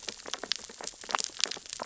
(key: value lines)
label: biophony, sea urchins (Echinidae)
recorder: SoundTrap 600 or HydroMoth